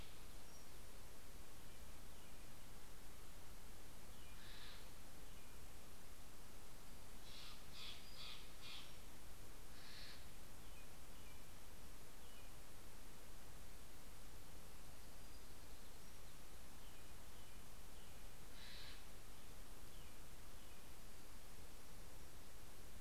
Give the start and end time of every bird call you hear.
1.7s-5.8s: American Robin (Turdus migratorius)
4.0s-5.2s: Steller's Jay (Cyanocitta stelleri)
7.5s-10.5s: Steller's Jay (Cyanocitta stelleri)
10.3s-13.0s: American Robin (Turdus migratorius)
14.8s-17.1s: Townsend's Warbler (Setophaga townsendi)
16.3s-21.5s: American Robin (Turdus migratorius)
18.1s-19.6s: Steller's Jay (Cyanocitta stelleri)

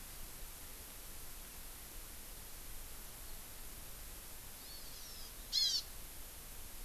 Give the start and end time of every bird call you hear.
4.5s-5.8s: Hawaii Amakihi (Chlorodrepanis virens)

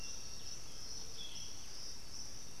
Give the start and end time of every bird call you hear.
0.0s-1.0s: Undulated Tinamou (Crypturellus undulatus)
0.0s-2.6s: Striped Cuckoo (Tapera naevia)
0.8s-1.9s: Boat-billed Flycatcher (Megarynchus pitangua)

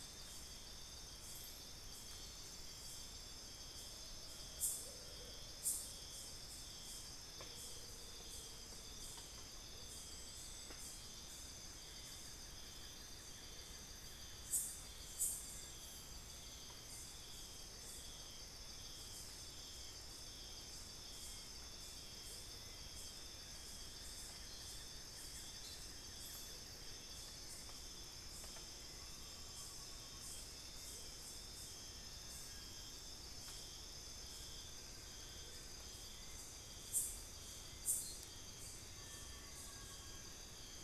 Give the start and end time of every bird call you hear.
3.6s-8.9s: Amazonian Motmot (Momotus momota)
11.7s-14.7s: Buff-throated Woodcreeper (Xiphorhynchus guttatus)
15.0s-24.6s: Hauxwell's Thrush (Turdus hauxwelli)
23.7s-27.7s: Buff-throated Woodcreeper (Xiphorhynchus guttatus)
28.6s-40.4s: Amazonian Pygmy-Owl (Glaucidium hardyi)

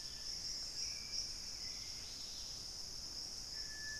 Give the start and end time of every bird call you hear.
0.0s-2.6s: Hauxwell's Thrush (Turdus hauxwelli)
0.0s-4.0s: Dusky-capped Greenlet (Pachysylvia hypoxantha)
0.0s-4.0s: Horned Screamer (Anhima cornuta)
0.0s-4.0s: Screaming Piha (Lipaugus vociferans)
3.3s-4.0s: Gray Antbird (Cercomacra cinerascens)

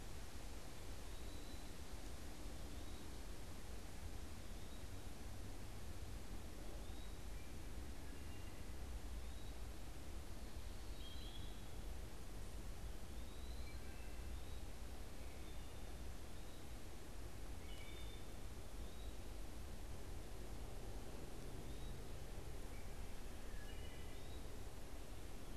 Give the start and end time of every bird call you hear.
0.0s-9.7s: Eastern Wood-Pewee (Contopus virens)
8.0s-9.0s: Wood Thrush (Hylocichla mustelina)
10.5s-18.4s: Wood Thrush (Hylocichla mustelina)
12.8s-24.6s: Eastern Wood-Pewee (Contopus virens)
22.3s-24.4s: Wood Thrush (Hylocichla mustelina)

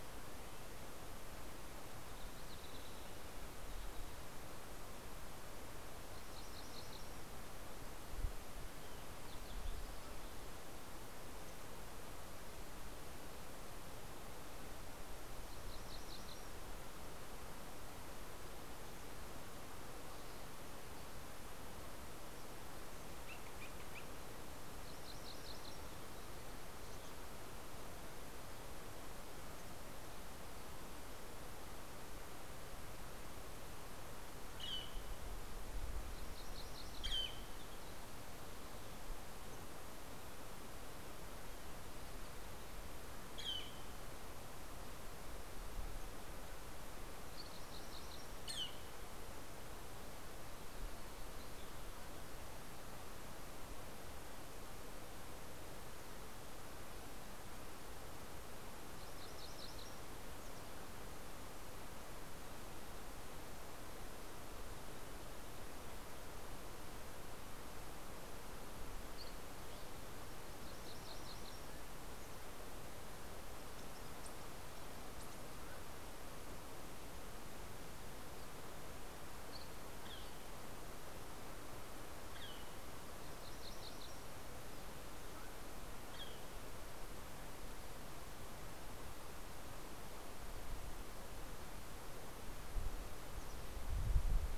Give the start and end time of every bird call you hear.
1.6s-4.2s: Fox Sparrow (Passerella iliaca)
5.8s-7.5s: MacGillivray's Warbler (Geothlypis tolmiei)
15.1s-17.3s: MacGillivray's Warbler (Geothlypis tolmiei)
22.6s-24.3s: Northern Flicker (Colaptes auratus)
24.4s-26.1s: MacGillivray's Warbler (Geothlypis tolmiei)
33.6s-35.5s: Northern Flicker (Colaptes auratus)
35.8s-37.3s: MacGillivray's Warbler (Geothlypis tolmiei)
36.8s-38.0s: Northern Flicker (Colaptes auratus)
43.1s-44.9s: Northern Flicker (Colaptes auratus)
46.6s-48.4s: MacGillivray's Warbler (Geothlypis tolmiei)
48.1s-49.7s: Northern Flicker (Colaptes auratus)
58.2s-60.4s: MacGillivray's Warbler (Geothlypis tolmiei)
70.0s-72.2s: MacGillivray's Warbler (Geothlypis tolmiei)
78.9s-79.8s: Dusky Flycatcher (Empidonax oberholseri)
79.8s-80.6s: Northern Flicker (Colaptes auratus)
81.9s-83.1s: Northern Flicker (Colaptes auratus)
83.0s-84.9s: MacGillivray's Warbler (Geothlypis tolmiei)
85.5s-86.9s: Northern Flicker (Colaptes auratus)

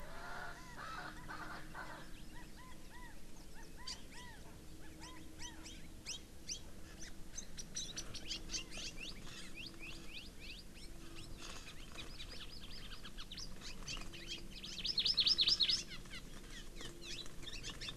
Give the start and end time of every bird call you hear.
0.0s-2.1s: Erckel's Francolin (Pternistis erckelii)
2.3s-3.2s: Chinese Hwamei (Garrulax canorus)
3.5s-4.4s: Chinese Hwamei (Garrulax canorus)
3.9s-4.3s: Hawaii Amakihi (Chlorodrepanis virens)
4.8s-5.6s: Chinese Hwamei (Garrulax canorus)
5.0s-5.1s: Hawaii Amakihi (Chlorodrepanis virens)
5.4s-6.2s: Hawaii Amakihi (Chlorodrepanis virens)
6.5s-6.6s: Hawaii Amakihi (Chlorodrepanis virens)
7.0s-7.1s: Hawaii Amakihi (Chlorodrepanis virens)
11.9s-13.1s: Hawaii Amakihi (Chlorodrepanis virens)
14.5s-15.8s: Hawaii Amakihi (Chlorodrepanis virens)

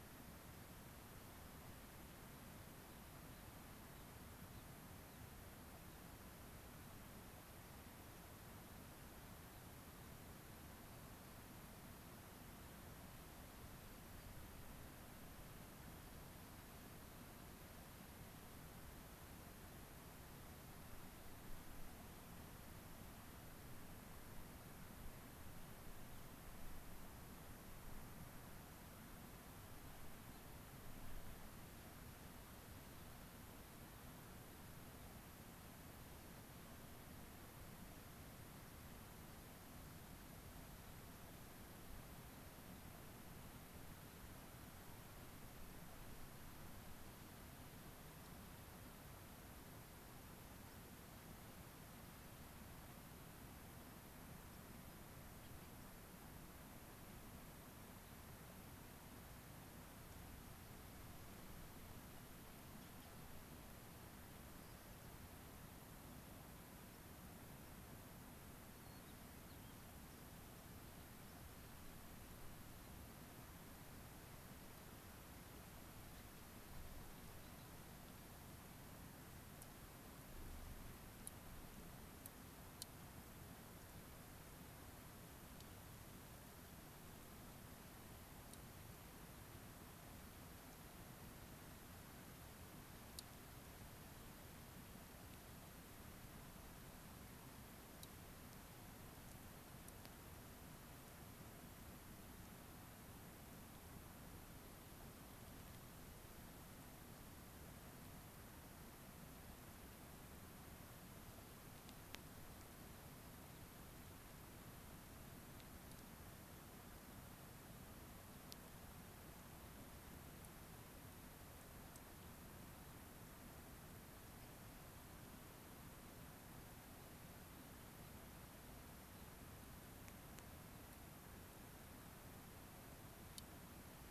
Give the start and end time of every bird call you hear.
2.9s-3.0s: Gray-crowned Rosy-Finch (Leucosticte tephrocotis)
3.3s-3.5s: Gray-crowned Rosy-Finch (Leucosticte tephrocotis)
3.9s-4.1s: Gray-crowned Rosy-Finch (Leucosticte tephrocotis)
4.5s-4.7s: Gray-crowned Rosy-Finch (Leucosticte tephrocotis)
5.0s-5.2s: Gray-crowned Rosy-Finch (Leucosticte tephrocotis)
5.9s-6.0s: Gray-crowned Rosy-Finch (Leucosticte tephrocotis)
13.8s-14.3s: White-crowned Sparrow (Zonotrichia leucophrys)
30.3s-30.4s: Gray-crowned Rosy-Finch (Leucosticte tephrocotis)
50.7s-50.8s: White-crowned Sparrow (Zonotrichia leucophrys)
64.5s-65.2s: unidentified bird
68.8s-69.8s: White-crowned Sparrow (Zonotrichia leucophrys)
128.0s-128.2s: Gray-crowned Rosy-Finch (Leucosticte tephrocotis)
129.1s-129.3s: Gray-crowned Rosy-Finch (Leucosticte tephrocotis)

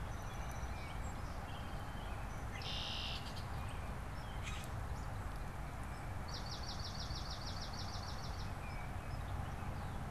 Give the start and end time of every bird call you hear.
0.0s-2.1s: Song Sparrow (Melospiza melodia)
2.2s-3.5s: Red-winged Blackbird (Agelaius phoeniceus)
4.0s-4.9s: Common Grackle (Quiscalus quiscula)
6.0s-8.8s: Swamp Sparrow (Melospiza georgiana)

